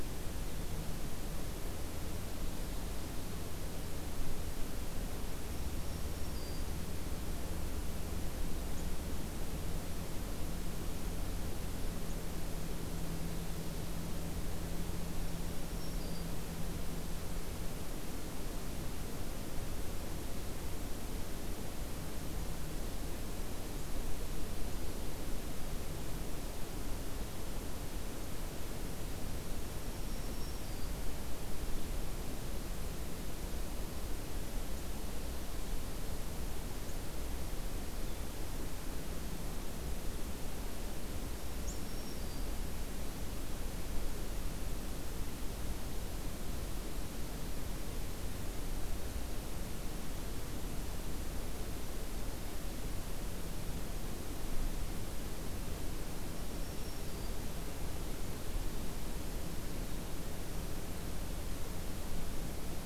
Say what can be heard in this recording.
Black-throated Green Warbler